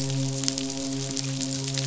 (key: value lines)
label: biophony, midshipman
recorder: SoundTrap 500